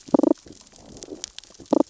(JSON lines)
{"label": "biophony, damselfish", "recorder": "SoundTrap 600 or HydroMoth"}